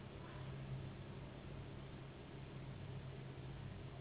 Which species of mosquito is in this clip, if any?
Anopheles gambiae s.s.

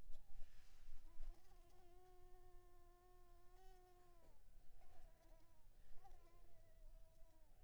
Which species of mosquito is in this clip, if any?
Anopheles coustani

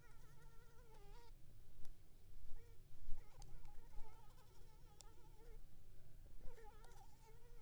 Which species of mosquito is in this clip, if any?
Anopheles arabiensis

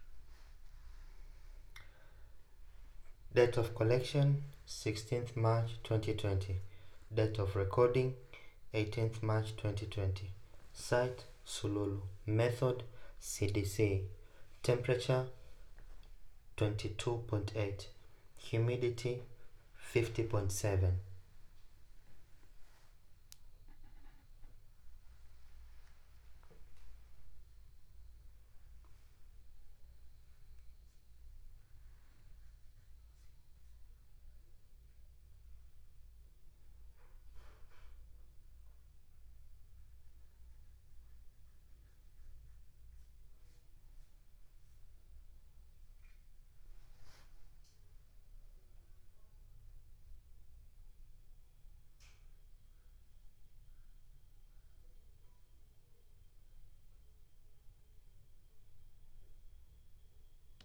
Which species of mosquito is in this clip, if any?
no mosquito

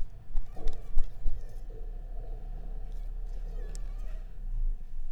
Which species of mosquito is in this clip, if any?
Anopheles arabiensis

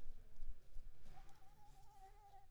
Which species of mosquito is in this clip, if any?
Anopheles arabiensis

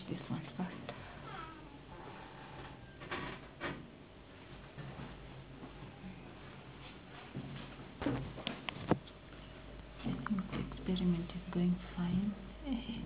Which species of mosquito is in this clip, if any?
no mosquito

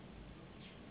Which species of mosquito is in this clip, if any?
Anopheles gambiae s.s.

